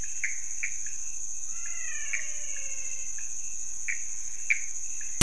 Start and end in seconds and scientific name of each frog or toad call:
0.0	4.6	Leptodactylus podicipinus
0.0	4.6	Pithecopus azureus
1.4	3.2	Physalaemus albonotatus